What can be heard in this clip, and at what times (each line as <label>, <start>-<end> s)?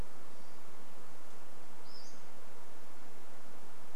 Pacific-slope Flycatcher call, 0-4 s